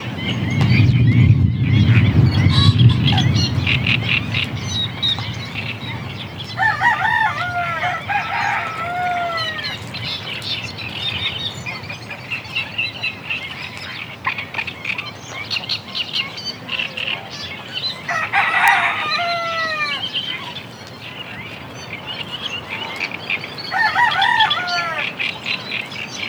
Is there only one species of animal?
no